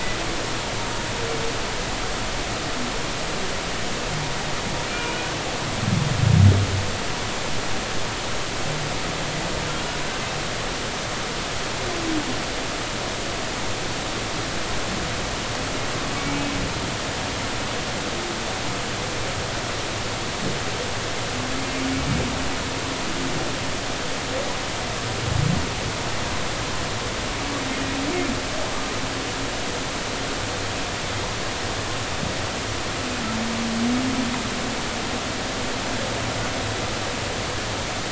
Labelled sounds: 4.9	5.2	humpback whale, 2.3 to 2.5 kHz
16.2	16.4	humpback whale, 2.2 to 2.3 kHz

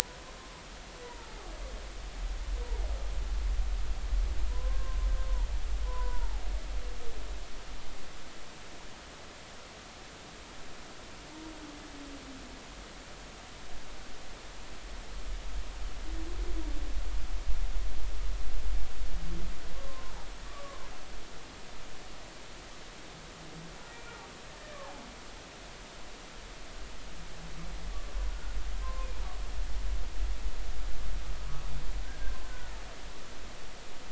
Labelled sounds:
1.0	1.3	humpback whale, 0.86 to 1.0 kHz
4.5	5.5	humpback whale, 0.86 to 1.1 kHz
5.8	6.4	humpback whale, 0.80 to 1.1 kHz
19.7	20.8	humpback whale, 0.99 to 1.2 kHz
28.8	29.1	humpback whale, 0.99 to 1.1 kHz
32.0	32.7	humpback whale, 1.4 to 1.7 kHz

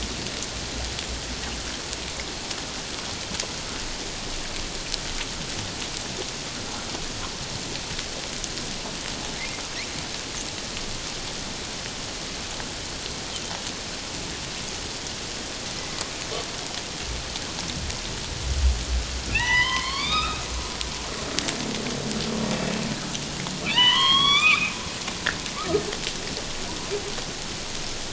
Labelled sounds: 19.3	20.4	humpback whale, 0.78 to 5.2 kHz
23.6	24.8	humpback whale, 0.88 to 5.9 kHz
25.6	25.8	humpback whale, 1.1 to 1.4 kHz

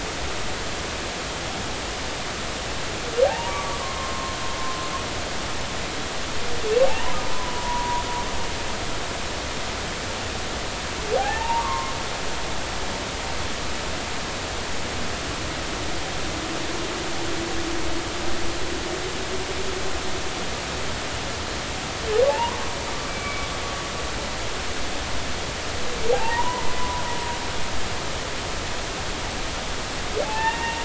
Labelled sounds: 3.2	4.3	humpback whale, 0.80 to 1.2 kHz
6.9	8.0	humpback whale, 0.80 to 1.1 kHz
11.2	11.9	humpback whale, 0.80 to 1.9 kHz
22.3	22.6	humpback whale, 0.80 to 1.1 kHz
23.1	23.5	humpback whale, 2.2 to 2.4 kHz
26.1	27.0	humpback whale, 0.80 to 1.1 kHz
30.2	30.8	humpback whale, 0.80 to 2.8 kHz

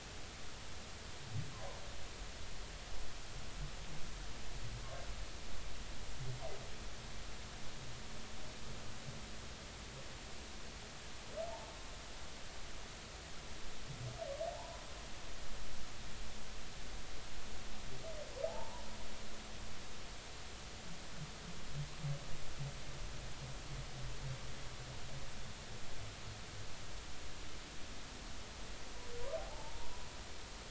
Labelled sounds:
1.5	1.8	humpback whale, 0.90 to 1.1 kHz
11.4	11.7	humpback whale, 0.80 to 0.96 kHz
14.5	14.8	humpback whale, 0.83 to 1.1 kHz
18.5	18.9	humpback whale, 0.80 to 1.0 kHz
29.4	29.9	humpback whale, 0.80 to 1.0 kHz

